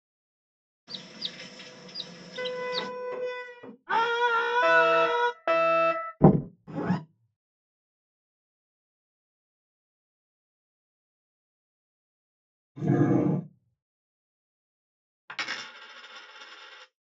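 First, there is chirping. While that goes on, wooden furniture moves. Then someone screams. Over it, an alarm can be heard. After that, knocking is heard. Next, there is the sound of a zipper. Later, a dog can be heard. Finally, a coin drops.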